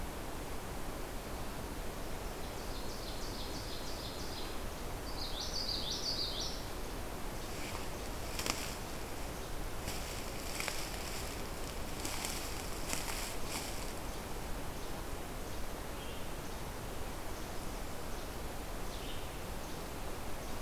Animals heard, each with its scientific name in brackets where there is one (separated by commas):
Common Yellowthroat (Geothlypis trichas), Ovenbird (Seiurus aurocapilla), Red-eyed Vireo (Vireo olivaceus)